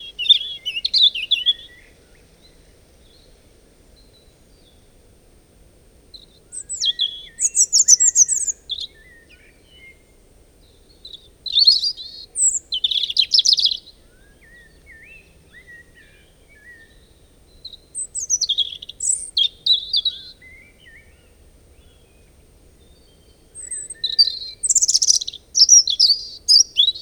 Is this outside?
yes